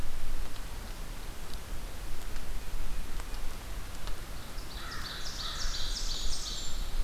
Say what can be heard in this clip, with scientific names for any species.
Seiurus aurocapilla, Corvus brachyrhynchos, Setophaga fusca